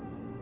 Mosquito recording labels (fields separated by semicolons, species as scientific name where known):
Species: Anopheles atroparvus; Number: one; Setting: insect culture